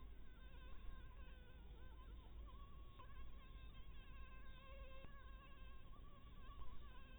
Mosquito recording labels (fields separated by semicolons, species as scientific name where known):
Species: Anopheles harrisoni; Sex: female; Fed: blood-fed; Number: one; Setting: cup